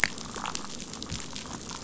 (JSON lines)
{"label": "biophony, damselfish", "recorder": "SoundTrap 500"}